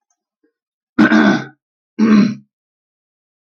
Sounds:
Throat clearing